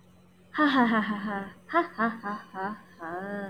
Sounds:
Laughter